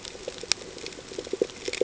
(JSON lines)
{"label": "ambient", "recorder": "HydroMoth"}